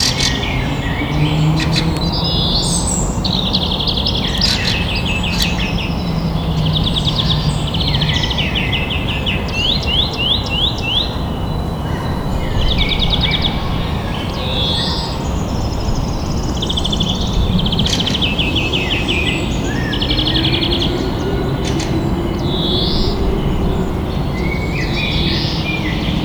Is this in nature?
yes